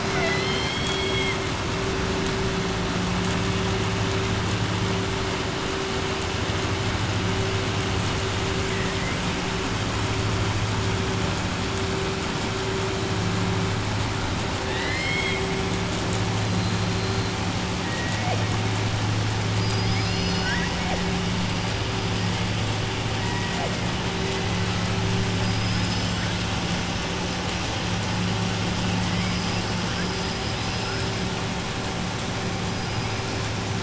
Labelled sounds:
0.0	1.4	killer whale, southern resident, 0.69 to 7.8 kHz
8.7	9.2	killer whale, southern resident, 1.8 to 2.4 kHz
14.6	15.4	killer whale, southern resident, 1.1 to 5.3 kHz
25.4	26.2	killer whale, southern resident, 3.7 to 6.1 kHz

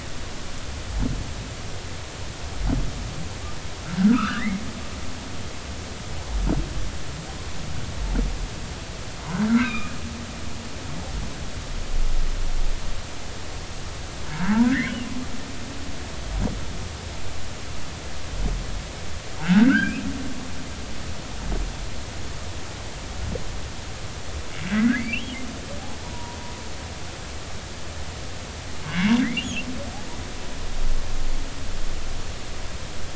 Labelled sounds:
4.1	4.6	humpback whale, 1.1 to 2.2 kHz
9.5	9.9	humpback whale, 1.2 to 2.8 kHz
14.6	14.9	humpback whale, 1.4 to 2.3 kHz
19.4	20.0	humpback whale, 1.2 to 3.3 kHz
24.8	25.4	humpback whale, 1.4 to 3.4 kHz
26.0	26.4	humpback whale, 0.90 to 1.1 kHz
28.8	29.7	humpback whale, 1.5 to 3.5 kHz

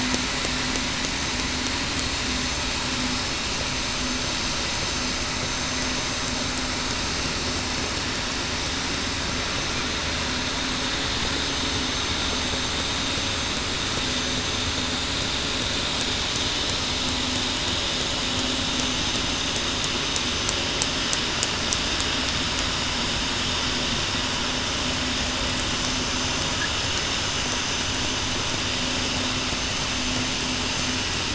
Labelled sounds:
4.8	5.2	vessel noise, 6.2 to 6.3 kHz
18.8	19.3	vessel noise, 6.1 to 6.2 kHz
25.6	26.4	vessel noise, 6.1 to 6.2 kHz
30.6	31.0	vessel noise, 6.2 to 6.3 kHz

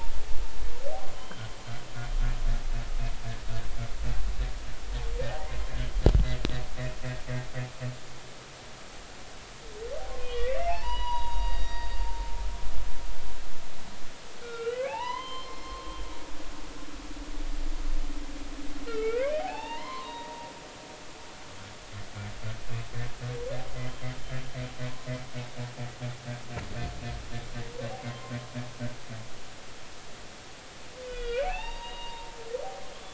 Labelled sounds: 1.1	1.5	humpback whale, 3.0 to 3.2 kHz
5.3	5.6	humpback whale, 0.80 to 1.1 kHz
10.2	12.1	humpback whale, 0.80 to 4.9 kHz
14.3	16.0	humpback whale, 0.80 to 4.3 kHz
18.9	20.5	humpback whale, 0.80 to 4.7 kHz
28.1	28.3	humpback whale, 0.99 to 1.1 kHz
31.0	32.3	humpback whale, 0.80 to 4.8 kHz

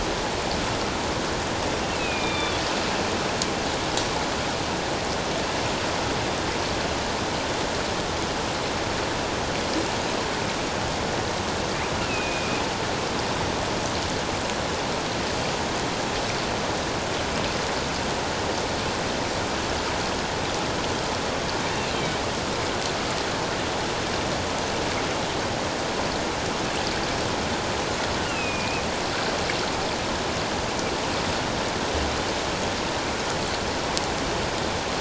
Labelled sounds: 1.9	2.6	killer whale, northern resident, A clan, AA subclan, call N04, 2.3 to 3.7 kHz
12.0	12.6	killer whale, northern resident, A clan, AA subclan, call N04, 2.3 to 2.8 kHz
28.2	28.8	killer whale, northern resident, A clan, AA subclan, call N04, 1.3 to 2.9 kHz

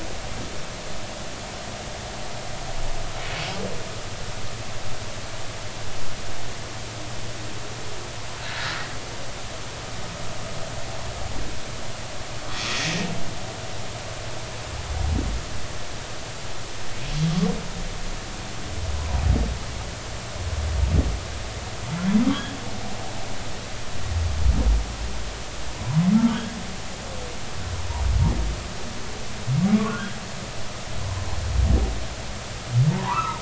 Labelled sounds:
8.5	8.8	humpback whale, 1.6 to 1.8 kHz
26.3	26.6	humpback whale, 1.4 to 1.7 kHz
29.9	30.2	humpback whale, 1.2 to 1.7 kHz
32.9	33.3	humpback whale, 0.80 to 1.4 kHz

